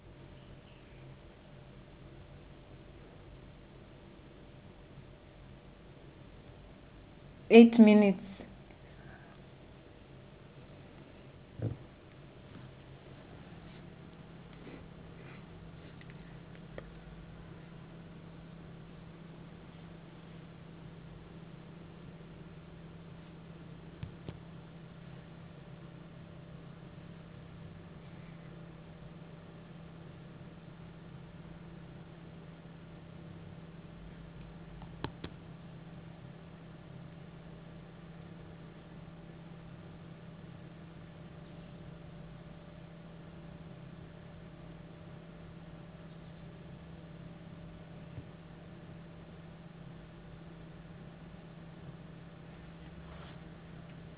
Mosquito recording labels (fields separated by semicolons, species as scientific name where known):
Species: no mosquito; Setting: insect culture